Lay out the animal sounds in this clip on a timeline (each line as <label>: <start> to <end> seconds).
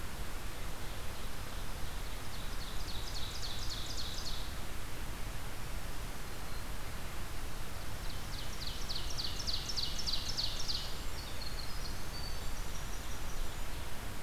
Ovenbird (Seiurus aurocapilla): 0.5 to 4.7 seconds
Ovenbird (Seiurus aurocapilla): 7.9 to 11.1 seconds
Winter Wren (Troglodytes hiemalis): 10.8 to 13.9 seconds